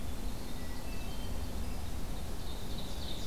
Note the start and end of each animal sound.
0.0s-3.3s: Winter Wren (Troglodytes hiemalis)
0.4s-1.5s: Hermit Thrush (Catharus guttatus)
2.4s-3.3s: Ovenbird (Seiurus aurocapilla)

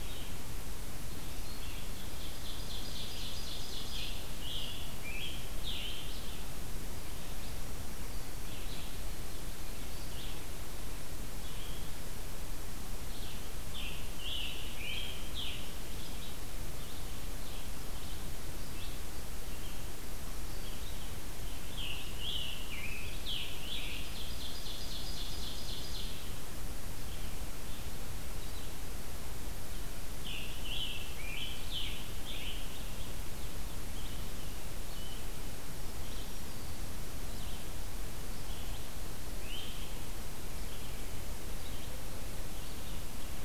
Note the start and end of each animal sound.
0.0s-1.8s: Red-eyed Vireo (Vireo olivaceus)
1.8s-4.2s: Ovenbird (Seiurus aurocapilla)
4.3s-6.5s: Scarlet Tanager (Piranga olivacea)
8.3s-21.1s: Red-eyed Vireo (Vireo olivaceus)
13.7s-15.9s: Scarlet Tanager (Piranga olivacea)
21.5s-24.1s: Scarlet Tanager (Piranga olivacea)
23.9s-26.2s: Ovenbird (Seiurus aurocapilla)
30.2s-33.0s: Scarlet Tanager (Piranga olivacea)
33.8s-39.1s: Red-eyed Vireo (Vireo olivaceus)
39.4s-40.0s: Scarlet Tanager (Piranga olivacea)

